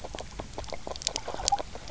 {"label": "biophony, grazing", "recorder": "SoundTrap 300"}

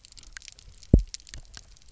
{"label": "biophony, double pulse", "recorder": "SoundTrap 300"}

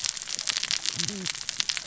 {"label": "biophony, cascading saw", "recorder": "SoundTrap 600 or HydroMoth"}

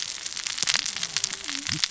{"label": "biophony, cascading saw", "recorder": "SoundTrap 600 or HydroMoth"}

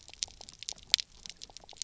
{"label": "biophony, pulse", "recorder": "SoundTrap 300"}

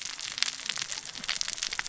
{"label": "biophony, cascading saw", "recorder": "SoundTrap 600 or HydroMoth"}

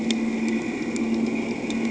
{"label": "anthrophony, boat engine", "recorder": "HydroMoth"}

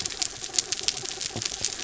{"label": "anthrophony, mechanical", "recorder": "SoundTrap 300"}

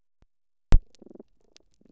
{"label": "biophony", "recorder": "SoundTrap 300"}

